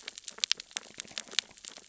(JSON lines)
{"label": "biophony, sea urchins (Echinidae)", "recorder": "SoundTrap 600 or HydroMoth"}